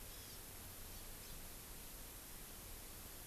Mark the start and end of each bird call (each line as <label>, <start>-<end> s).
Hawaii Amakihi (Chlorodrepanis virens), 0.0-0.5 s
Hawaii Amakihi (Chlorodrepanis virens), 1.1-1.4 s